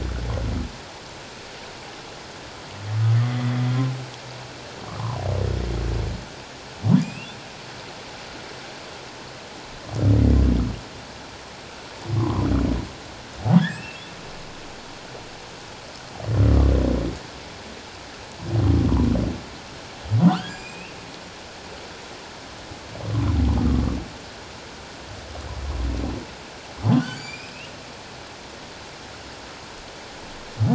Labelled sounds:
7.0	7.4	humpback whale, 2.4 to 2.9 kHz
12.2	12.5	humpback whale, 0.94 to 1.2 kHz
13.7	14.0	humpback whale, 2.5 to 2.8 kHz
20.3	21.0	humpback whale, 0.94 to 7.5 kHz
27.0	27.7	humpback whale, 1.4 to 7.1 kHz

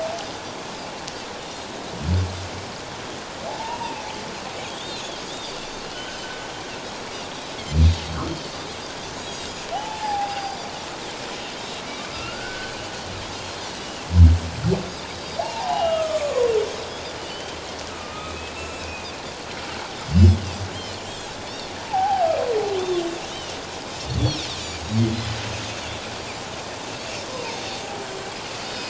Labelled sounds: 3.6	4.0	humpback whale, 0.81 to 1.0 kHz
3.7	5.0	Pacific white-sided dolphin, 2.6 to 3.8 kHz
5.3	6.3	Pacific white-sided dolphin, 2.8 to 3.8 kHz
6.2	6.5	humpback whale, 1.5 to 1.6 kHz
9.2	9.5	Pacific white-sided dolphin, 3.7 to 7.1 kHz
9.7	10.6	humpback whale, 0.78 to 0.94 kHz
10.3	10.6	Pacific white-sided dolphin, 4.7 to 5.1 kHz
12.1	12.7	humpback whale, 1.2 to 1.6 kHz
13.4	14.0	Pacific white-sided dolphin, 2.6 to 4.4 kHz
15.4	16.5	humpback whale, 0.78 to 2.9 kHz
17.2	17.6	Pacific white-sided dolphin, 2.8 to 3.2 kHz
17.9	19.1	humpback whale, 1.2 to 3.6 kHz
20.1	20.3	Pacific white-sided dolphin, 4.2 to 4.8 kHz
20.8	21.7	Pacific white-sided dolphin, 3.9 to 4.8 kHz
21.8	22.3	humpback whale, 0.78 to 1.0 kHz
22.8	23.0	Pacific white-sided dolphin, 3.3 to 3.7 kHz
23.3	23.5	Pacific white-sided dolphin, 2.8 to 3.2 kHz
24.8	25.0	Pacific white-sided dolphin, 6.5 to 6.8 kHz

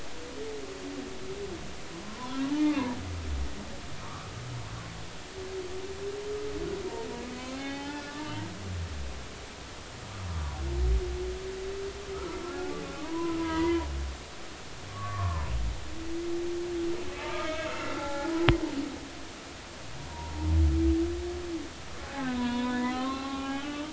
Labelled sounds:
2.0	3.0	humpback whale, 0.83 to 1.2 kHz
4.0	4.3	humpback whale, 1.0 to 1.4 kHz
7.5	8.3	humpback whale, 0.80 to 3.7 kHz
10.3	10.5	humpback whale, 1.1 to 1.2 kHz
12.1	12.7	humpback whale, 1.2 to 1.5 kHz
13.0	13.9	humpback whale, 0.83 to 2.1 kHz
14.9	15.5	humpback whale, 0.90 to 1.2 kHz
17.2	18.3	humpback whale, 0.80 to 2.3 kHz
20.1	20.5	humpback whale, 0.86 to 0.99 kHz
22.0	23.9	humpback whale, 0.80 to 3.8 kHz

